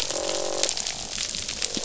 {"label": "biophony, croak", "recorder": "SoundTrap 500"}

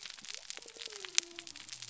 {"label": "biophony", "recorder": "SoundTrap 300"}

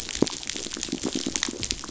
{"label": "biophony", "recorder": "SoundTrap 500"}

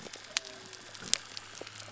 {"label": "biophony", "recorder": "SoundTrap 300"}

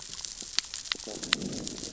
{"label": "biophony, growl", "recorder": "SoundTrap 600 or HydroMoth"}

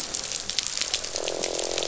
{"label": "biophony, croak", "recorder": "SoundTrap 500"}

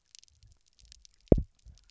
{"label": "biophony, double pulse", "recorder": "SoundTrap 300"}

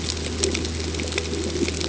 {"label": "ambient", "recorder": "HydroMoth"}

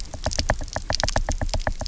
{"label": "biophony, knock", "recorder": "SoundTrap 300"}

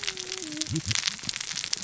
{"label": "biophony, cascading saw", "recorder": "SoundTrap 600 or HydroMoth"}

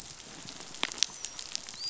{"label": "biophony, dolphin", "recorder": "SoundTrap 500"}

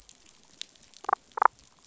{"label": "biophony, damselfish", "recorder": "SoundTrap 500"}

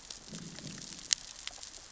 {"label": "biophony, growl", "recorder": "SoundTrap 600 or HydroMoth"}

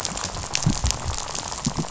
{"label": "biophony, rattle", "recorder": "SoundTrap 500"}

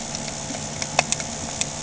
{"label": "anthrophony, boat engine", "recorder": "HydroMoth"}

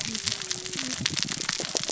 {"label": "biophony, cascading saw", "recorder": "SoundTrap 600 or HydroMoth"}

